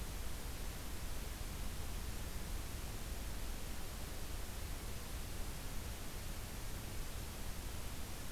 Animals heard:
forest ambience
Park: Acadia National Park